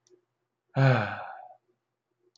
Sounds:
Sigh